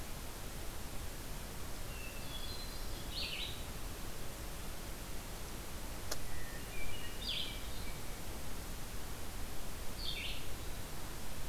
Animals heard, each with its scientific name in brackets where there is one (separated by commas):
Hermit Thrush (Catharus guttatus), Red-eyed Vireo (Vireo olivaceus)